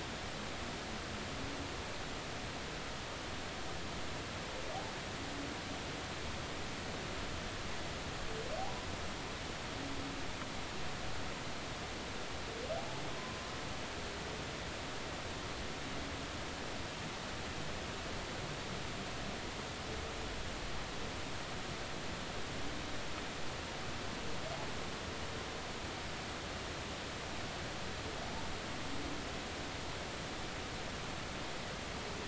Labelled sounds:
8.6	8.9	humpback whale, 0.80 to 1.0 kHz

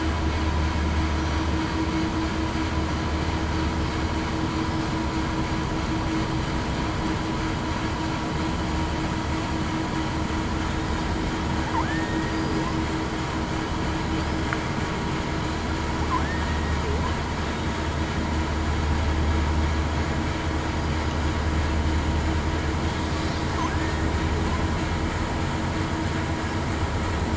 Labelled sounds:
11.8	12.3	killer whale, southern resident, 1.7 to 1.9 kHz
23.7	24.1	killer whale, southern resident, 1.7 to 1.9 kHz

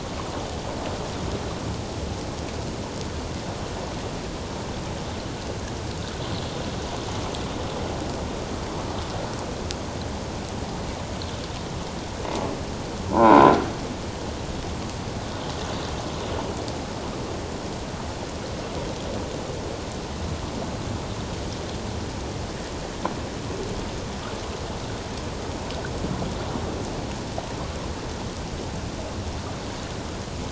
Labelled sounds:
13.1	13.5	croaking sound likely from a nearby submerged object, 0.78 to 1.6 kHz

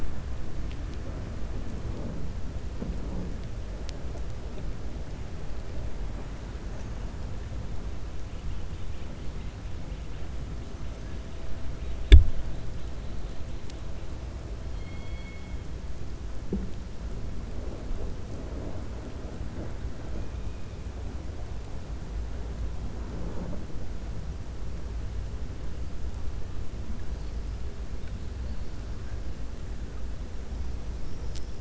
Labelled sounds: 14.7	15.5	killer whale, 2.1 to 4.3 kHz

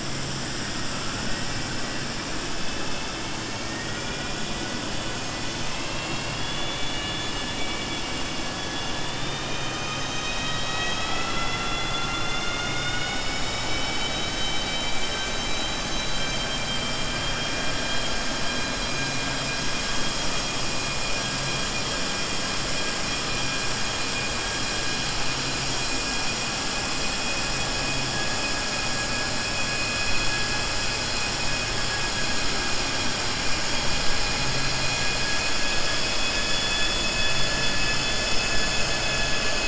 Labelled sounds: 1.2	1.7	vessel noise, 1.4 to 2.7 kHz
3.6	4.7	vessel noise, 1.4 to 3.4 kHz

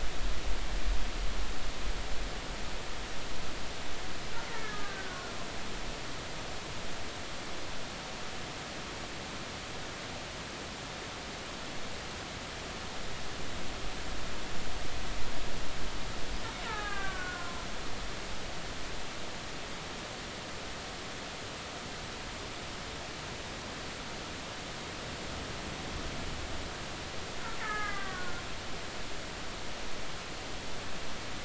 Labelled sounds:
4.5	5.3	killer whale, Bigg's (transient), 1.2 to 2.0 kHz
16.7	17.7	killer whale, Bigg's (transient), 0.80 to 2.9 kHz
27.6	28.4	killer whale, Bigg's (transient), 1.0 to 2.2 kHz

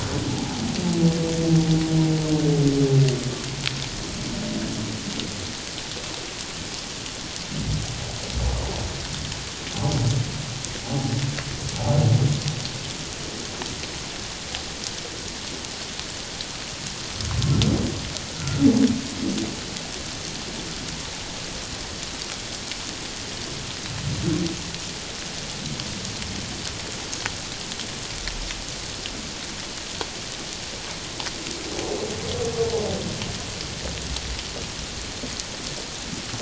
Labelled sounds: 0.3	0.6	humpback whale, 0.78 to 0.91 kHz
10.8	11.2	humpback whale, 0.78 to 0.88 kHz
18.4	18.6	humpback whale, 1.3 to 1.6 kHz

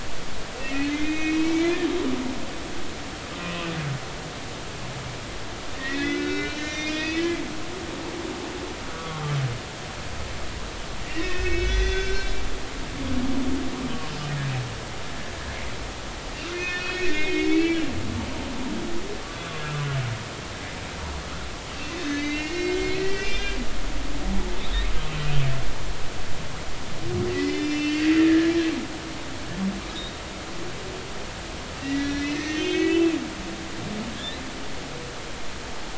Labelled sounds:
0.6	1.8	humpback whale, 1.8 to 5.2 kHz
5.7	7.2	humpback whale, 1.4 to 6.3 kHz
8.9	9.2	humpback whale, 1.1 to 1.2 kHz
11.1	13.2	humpback whale, 1.4 to 6.2 kHz
16.5	18.8	humpback whale, 1.3 to 6.8 kHz
22.0	23.6	humpback whale, 1.8 to 5.2 kHz
27.3	28.5	humpback whale, 1.6 to 6.3 kHz
31.8	33.1	humpback whale, 1.6 to 6.5 kHz
34.2	34.4	humpback whale, 3.2 to 4.2 kHz

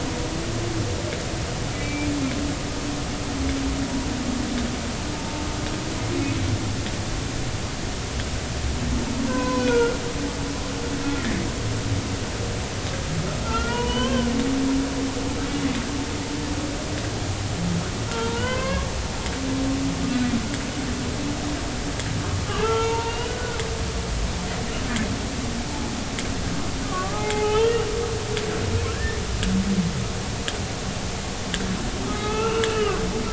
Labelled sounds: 1.7	2.1	humpback whale, 2.2 to 2.4 kHz
5.1	5.4	humpback whale, 0.83 to 0.93 kHz
9.3	10.0	humpback whale, 0.96 to 4.1 kHz
11.1	11.4	humpback whale, 1.7 to 2.0 kHz
13.4	14.3	humpback whale, 0.90 to 3.4 kHz
18.1	18.9	humpback whale, 0.86 to 3.2 kHz
22.6	23.6	humpback whale, 0.83 to 3.9 kHz
26.9	27.9	humpback whale, 0.80 to 3.3 kHz
28.9	29.2	humpback whale, 1.6 to 1.9 kHz
32.0	33.0	humpback whale, 0.80 to 3.0 kHz

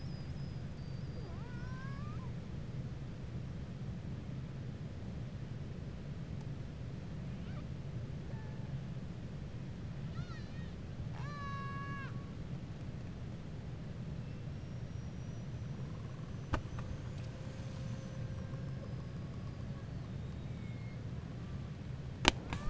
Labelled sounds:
0.7	2.3	killer whale, 0.40 to 5.2 kHz
10.0	12.2	killer whale, 0.74 to 7.0 kHz
14.6	15.8	killer whale, 5.6 to 6.0 kHz

